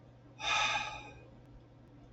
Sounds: Sigh